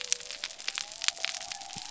{"label": "biophony", "recorder": "SoundTrap 300"}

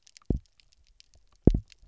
{"label": "biophony, double pulse", "recorder": "SoundTrap 300"}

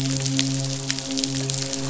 {"label": "biophony, midshipman", "recorder": "SoundTrap 500"}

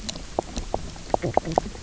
{"label": "biophony, knock croak", "recorder": "SoundTrap 300"}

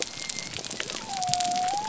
{"label": "biophony", "recorder": "SoundTrap 300"}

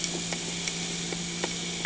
{"label": "anthrophony, boat engine", "recorder": "HydroMoth"}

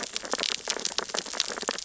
{"label": "biophony, sea urchins (Echinidae)", "recorder": "SoundTrap 600 or HydroMoth"}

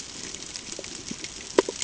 {"label": "ambient", "recorder": "HydroMoth"}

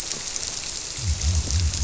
{"label": "biophony", "recorder": "SoundTrap 300"}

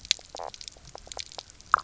{"label": "biophony, knock croak", "recorder": "SoundTrap 300"}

